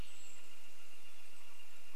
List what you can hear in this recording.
Canada Jay call, Golden-crowned Kinglet call, Northern Flicker call